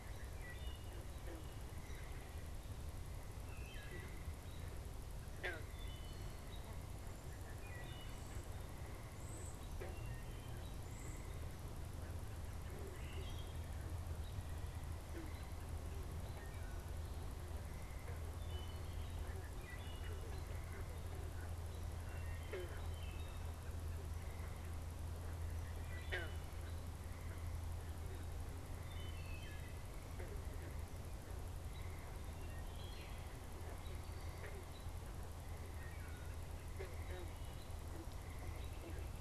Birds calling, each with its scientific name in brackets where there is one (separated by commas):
Cedar Waxwing (Bombycilla cedrorum), American Robin (Turdus migratorius), Wood Thrush (Hylocichla mustelina)